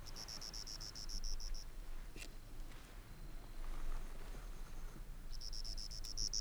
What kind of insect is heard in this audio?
orthopteran